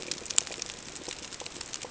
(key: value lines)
label: ambient
recorder: HydroMoth